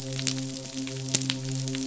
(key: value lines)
label: biophony, midshipman
recorder: SoundTrap 500